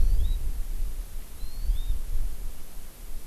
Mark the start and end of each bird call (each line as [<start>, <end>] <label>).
[0.00, 0.40] Hawaii Amakihi (Chlorodrepanis virens)
[1.40, 2.00] Hawaii Amakihi (Chlorodrepanis virens)